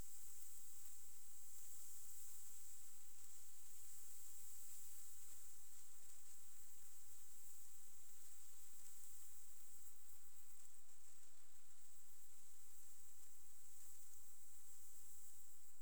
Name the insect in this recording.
Pseudochorthippus parallelus, an orthopteran